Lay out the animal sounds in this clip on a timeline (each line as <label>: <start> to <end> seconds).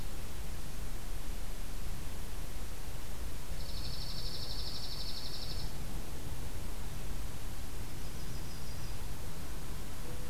Dark-eyed Junco (Junco hyemalis): 3.5 to 5.7 seconds
Yellow-rumped Warbler (Setophaga coronata): 7.7 to 9.0 seconds